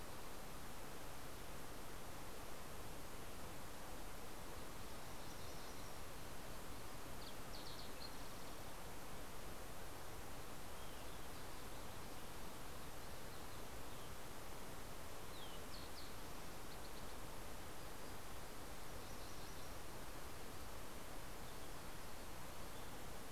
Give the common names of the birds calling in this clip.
Yellow-rumped Warbler, Fox Sparrow, Olive-sided Flycatcher, MacGillivray's Warbler